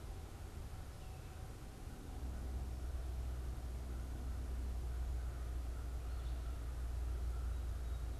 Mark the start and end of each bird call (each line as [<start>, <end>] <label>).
[3.28, 8.20] American Crow (Corvus brachyrhynchos)